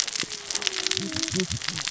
{"label": "biophony, cascading saw", "recorder": "SoundTrap 600 or HydroMoth"}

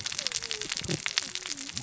{"label": "biophony, cascading saw", "recorder": "SoundTrap 600 or HydroMoth"}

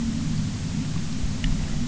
{"label": "anthrophony, boat engine", "recorder": "SoundTrap 300"}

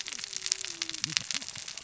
{"label": "biophony, cascading saw", "recorder": "SoundTrap 600 or HydroMoth"}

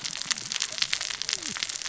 {"label": "biophony, cascading saw", "recorder": "SoundTrap 600 or HydroMoth"}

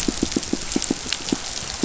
{"label": "biophony, pulse", "recorder": "SoundTrap 500"}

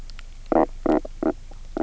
{"label": "biophony, knock croak", "recorder": "SoundTrap 300"}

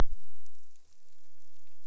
{"label": "biophony", "recorder": "SoundTrap 300"}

